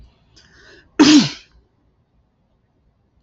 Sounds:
Sneeze